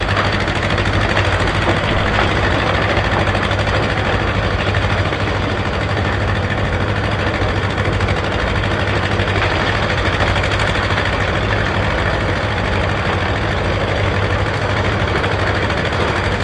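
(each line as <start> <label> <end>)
0.0 The motor is running continuously. 16.4
2.3 The sound of slow immersion in water. 4.8
2.4 Engine sounds muffled. 16.4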